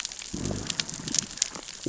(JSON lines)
{"label": "biophony, growl", "recorder": "SoundTrap 600 or HydroMoth"}